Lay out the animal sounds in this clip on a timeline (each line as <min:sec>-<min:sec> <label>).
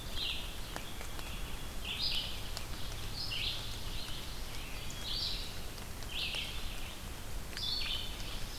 0:00.0-0:08.6 Red-eyed Vireo (Vireo olivaceus)
0:00.9-0:01.7 Wood Thrush (Hylocichla mustelina)
0:04.5-0:05.1 Wood Thrush (Hylocichla mustelina)